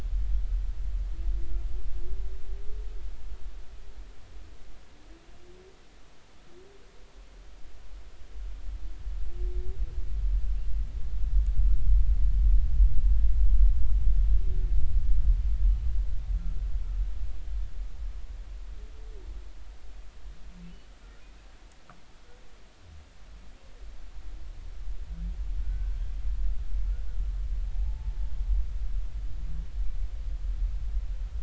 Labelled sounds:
25.6	26.0	humpback whale, 1.4 to 1.6 kHz
27.7	28.2	humpback whale, 0.80 to 0.93 kHz

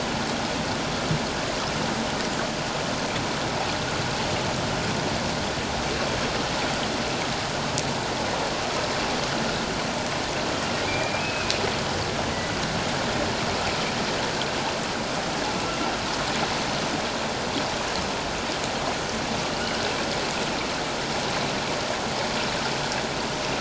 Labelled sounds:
10.9	11.5	humpback whale, 2.3 to 2.7 kHz
12.3	12.6	humpback whale, 1.9 to 2.1 kHz

